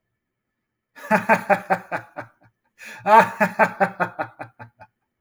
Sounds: Laughter